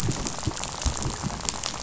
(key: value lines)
label: biophony, rattle
recorder: SoundTrap 500